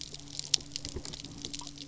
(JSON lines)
{"label": "anthrophony, boat engine", "recorder": "SoundTrap 300"}